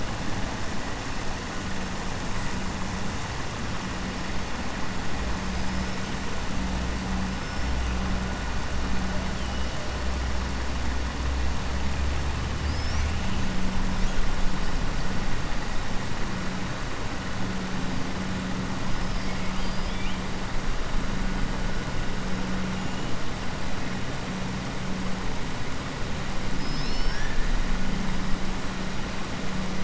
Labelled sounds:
12.6	13.1	killer whale, 4.6 to 6.1 kHz
19.3	20.2	killer whale, 2.2 to 5.1 kHz
26.5	27.5	killer whale, 1.6 to 5.9 kHz

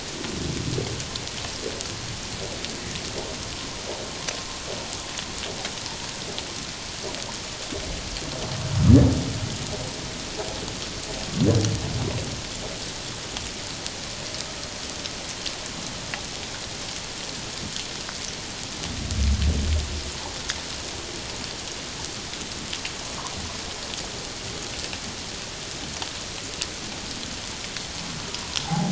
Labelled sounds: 28.6	28.9	humpback whale, 0.78 to 0.94 kHz

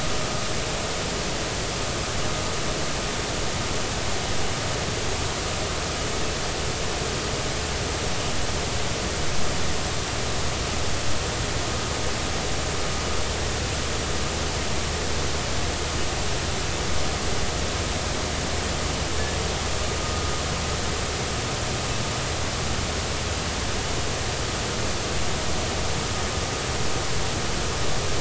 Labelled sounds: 20.0	20.3	vessel noise, 1.2 to 1.3 kHz

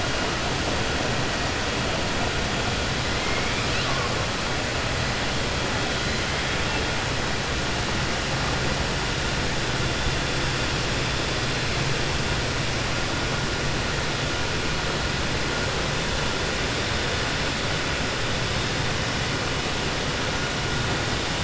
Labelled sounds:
3.2	4.1	killer whale, 0.52 to 4.5 kHz

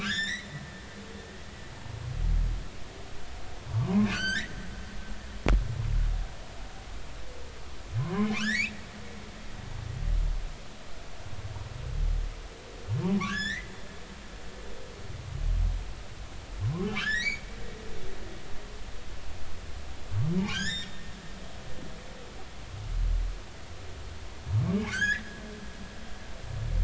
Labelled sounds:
0.0	0.5	humpback whale, 1.3 to 7.4 kHz
0.8	1.1	humpback whale, 1.1 to 1.2 kHz
3.7	4.5	humpback whale, 0.86 to 8.0 kHz
8.0	8.7	humpback whale, 0.93 to 4.0 kHz
13.1	13.7	humpback whale, 0.80 to 5.6 kHz
17.0	17.4	humpback whale, 1.3 to 6.0 kHz
17.8	18.3	humpback whale, 2.9 to 4.3 kHz
20.5	20.9	humpback whale, 1.4 to 7.6 kHz
24.9	25.3	humpback whale, 1.3 to 5.3 kHz

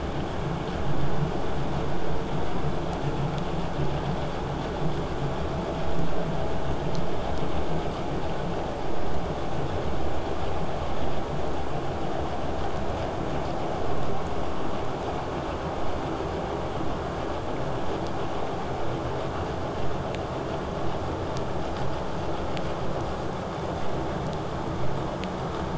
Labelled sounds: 20.8	25.7	vessel noise, 0 to 8.0 kHz

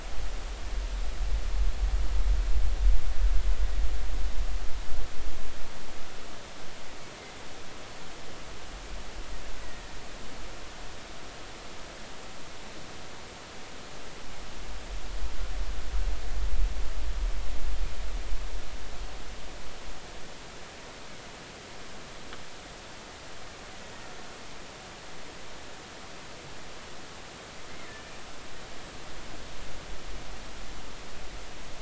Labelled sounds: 9.6	9.9	killer whale, Bigg's (transient), 1.8 to 2.0 kHz

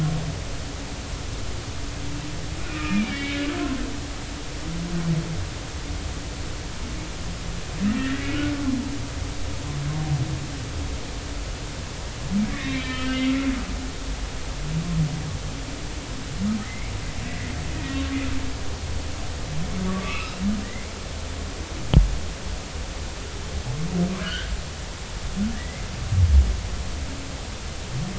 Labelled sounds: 2.6	3.4	humpback whale, 1.2 to 3.1 kHz
7.9	8.3	humpback whale, 1.7 to 2.0 kHz
12.5	13.3	humpback whale, 1.2 to 3.8 kHz
16.6	17.5	humpback whale, 1.8 to 2.4 kHz
19.9	20.4	humpback whale, 1.1 to 2.8 kHz
24.2	24.5	humpback whale, 1.4 to 3.4 kHz
25.5	25.9	humpback whale, 1.7 to 2.2 kHz

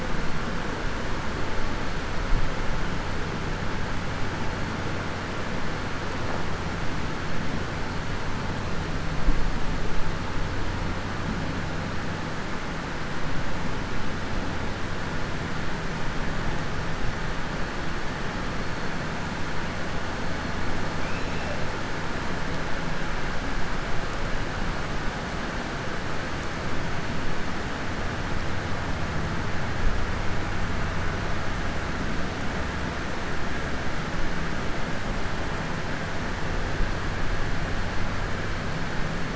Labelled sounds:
21.0	21.5	killer whale, southern resident, 2.2 to 3.5 kHz

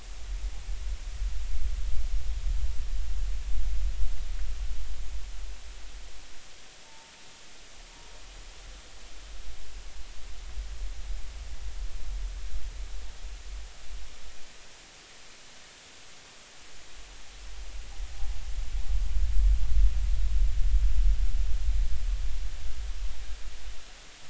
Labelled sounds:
6.8	7.1	humpback whale, 0.83 to 0.96 kHz

